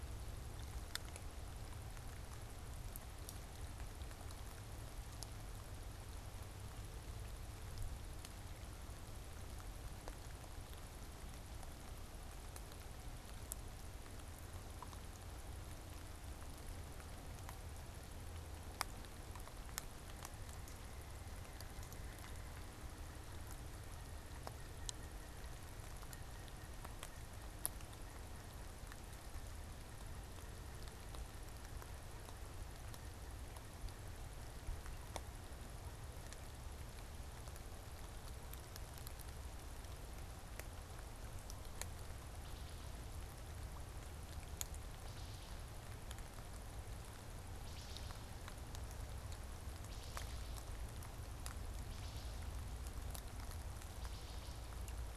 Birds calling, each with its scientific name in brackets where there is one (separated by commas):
Pileated Woodpecker (Dryocopus pileatus), Wood Thrush (Hylocichla mustelina)